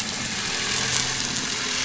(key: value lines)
label: anthrophony, boat engine
recorder: SoundTrap 500